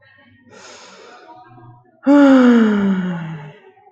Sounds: Sigh